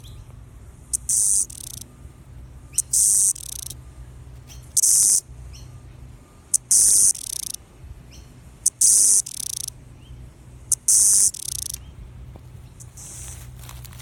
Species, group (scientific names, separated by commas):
Yoyetta cumberlandi, Cicadidae